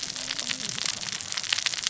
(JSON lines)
{"label": "biophony, cascading saw", "recorder": "SoundTrap 600 or HydroMoth"}